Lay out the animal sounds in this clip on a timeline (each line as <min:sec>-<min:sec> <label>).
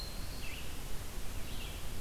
0:00.0-0:00.9 Eastern Wood-Pewee (Contopus virens)
0:00.2-0:02.0 Red-eyed Vireo (Vireo olivaceus)